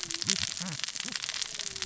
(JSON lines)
{"label": "biophony, cascading saw", "recorder": "SoundTrap 600 or HydroMoth"}